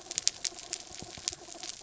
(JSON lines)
{"label": "anthrophony, mechanical", "recorder": "SoundTrap 300"}